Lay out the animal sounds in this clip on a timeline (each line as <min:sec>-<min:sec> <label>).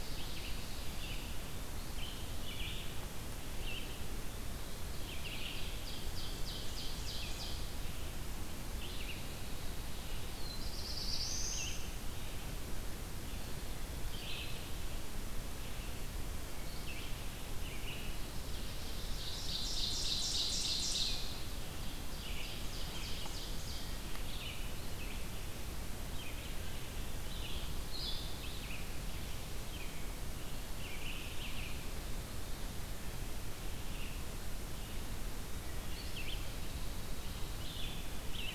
0:00.0-0:38.5 Red-eyed Vireo (Vireo olivaceus)
0:04.9-0:07.7 Ovenbird (Seiurus aurocapilla)
0:10.3-0:12.0 Black-throated Blue Warbler (Setophaga caerulescens)
0:19.0-0:21.3 Ovenbird (Seiurus aurocapilla)
0:22.1-0:24.0 Ovenbird (Seiurus aurocapilla)